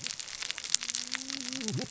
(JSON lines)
{"label": "biophony, cascading saw", "recorder": "SoundTrap 600 or HydroMoth"}